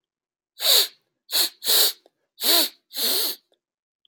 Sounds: Sniff